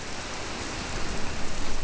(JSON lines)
{"label": "biophony", "recorder": "SoundTrap 300"}